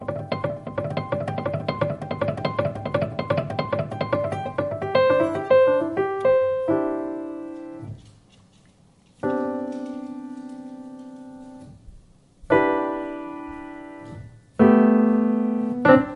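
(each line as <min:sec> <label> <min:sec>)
0:00.0 Two piano keyboards play a continuous, synchronized rhythm, creating a layered, arpeggio-like sequence. 0:16.2
0:00.1 Two piano keyboards are played in a continuous, synchronized rhythm. 0:04.9
0:04.9 Piano music. 0:08.0
0:09.2 The piano keyboard is being long pressed playing music. 0:11.9
0:12.5 The prolonged sound of a single piano key being pressed. 0:14.3
0:14.6 A piano playing as the music ends. 0:16.2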